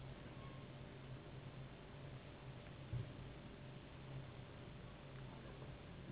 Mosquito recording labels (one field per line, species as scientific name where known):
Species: Anopheles gambiae s.s.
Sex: female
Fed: unfed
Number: one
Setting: insect culture